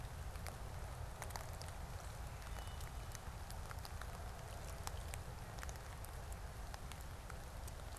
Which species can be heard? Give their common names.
Wood Thrush